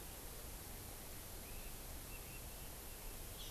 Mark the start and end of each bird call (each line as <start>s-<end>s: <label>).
1.4s-3.2s: Red-billed Leiothrix (Leiothrix lutea)